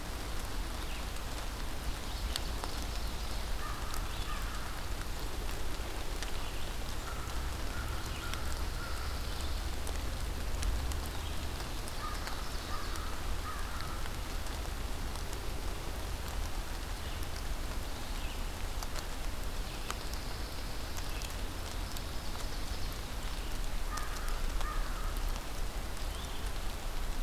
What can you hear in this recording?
Ovenbird, American Crow, Red-eyed Vireo, Pine Warbler